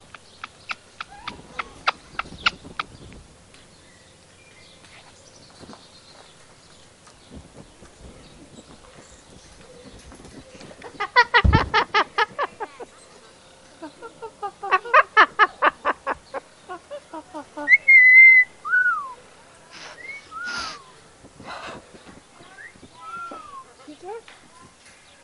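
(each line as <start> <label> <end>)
0.0 A bird quietly chatters repeatedly. 3.3
0.0 Birds singing at varying volumes in the distance. 25.2
11.0 A bird squawks loudly and repeatedly. 12.9
13.8 A parrot squawks quietly and repeatedly. 14.7
14.7 A bird squawks loudly and repeatedly. 16.4
16.6 A bird squawks quietly and repeatedly. 17.7
17.7 A bird sings with gradually decreasing volume. 19.3
19.7 A bird makes harsh repeated noises. 22.0
20.3 A bird sings with gradually decreasing volume. 20.9
22.6 A bird sings outside with its volume gradually decreasing. 23.8
23.9 A person is speaking muffledly with suddenly increasing volume. 24.5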